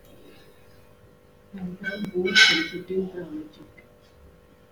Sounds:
Cough